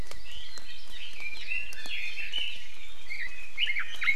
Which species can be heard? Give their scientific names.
Leiothrix lutea, Drepanis coccinea